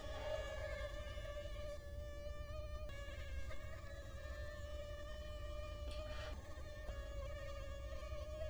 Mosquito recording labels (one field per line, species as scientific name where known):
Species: Culex quinquefasciatus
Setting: cup